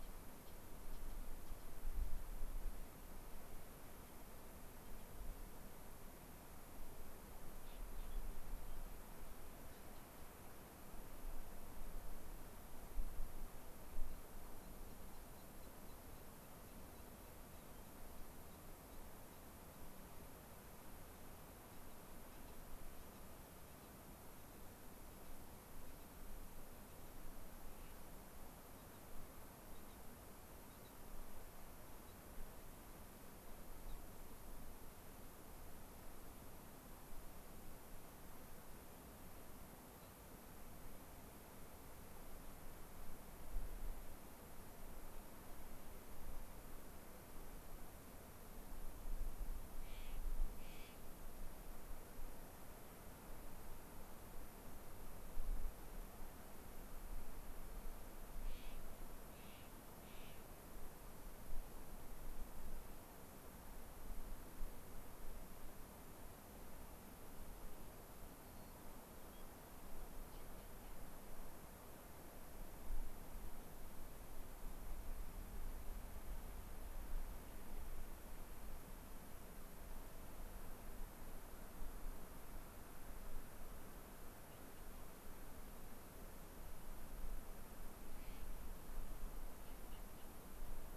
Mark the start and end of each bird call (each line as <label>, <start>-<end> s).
Rock Wren (Salpinctes obsoletus), 8.1-8.2 s
Rock Wren (Salpinctes obsoletus), 8.7-8.8 s
Clark's Nutcracker (Nucifraga columbiana), 27.7-28.0 s
Clark's Nutcracker (Nucifraga columbiana), 49.8-50.2 s
Clark's Nutcracker (Nucifraga columbiana), 50.6-51.0 s
Clark's Nutcracker (Nucifraga columbiana), 58.4-58.8 s
Clark's Nutcracker (Nucifraga columbiana), 59.3-59.7 s
Clark's Nutcracker (Nucifraga columbiana), 60.0-60.4 s
White-crowned Sparrow (Zonotrichia leucophrys), 68.4-69.4 s
Clark's Nutcracker (Nucifraga columbiana), 88.2-88.4 s